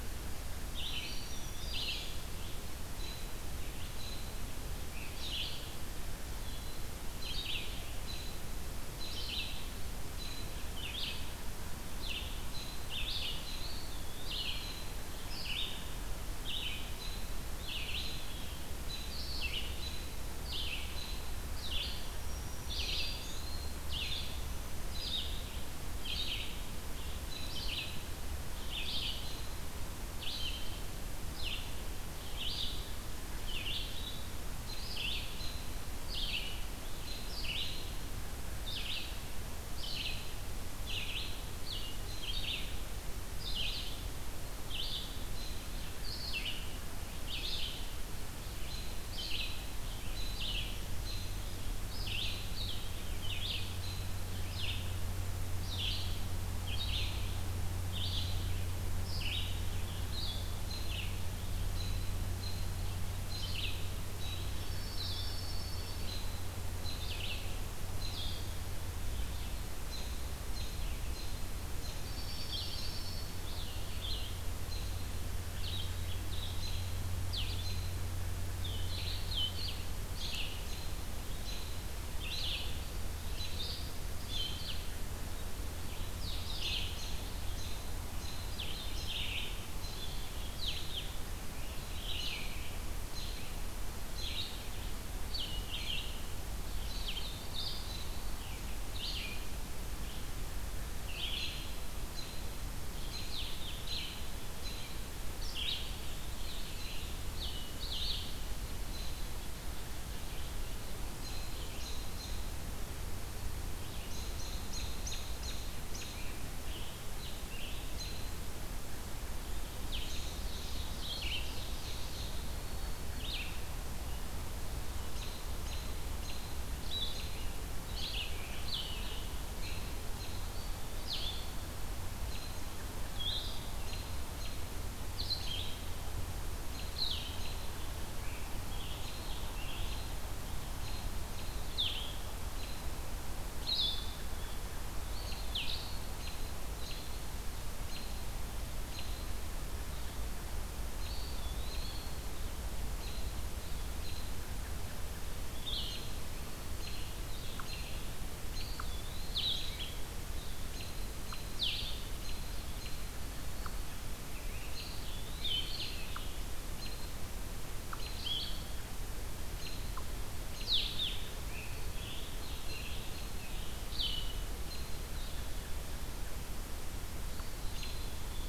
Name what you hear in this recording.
Red-eyed Vireo, Black-throated Green Warbler, Eastern Wood-Pewee, American Robin, Blue-headed Vireo, Dark-eyed Junco, Scarlet Tanager, Ovenbird